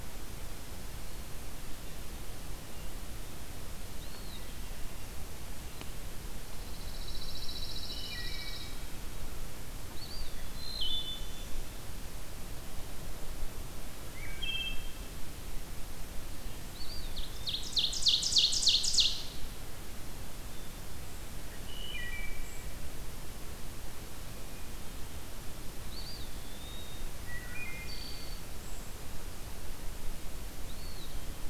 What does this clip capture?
Eastern Wood-Pewee, Pine Warbler, Wood Thrush, Ovenbird, Brown Creeper